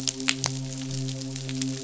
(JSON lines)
{"label": "biophony, midshipman", "recorder": "SoundTrap 500"}